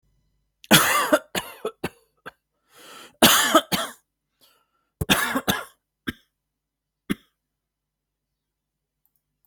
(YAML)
expert_labels:
- quality: ok
  cough_type: dry
  dyspnea: false
  wheezing: false
  stridor: false
  choking: false
  congestion: false
  nothing: true
  diagnosis: COVID-19
  severity: mild
age: 35
gender: male
respiratory_condition: false
fever_muscle_pain: false
status: healthy